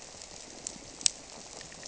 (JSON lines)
{"label": "biophony", "recorder": "SoundTrap 300"}